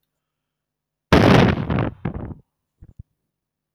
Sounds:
Sigh